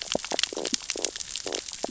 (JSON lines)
{"label": "biophony, stridulation", "recorder": "SoundTrap 600 or HydroMoth"}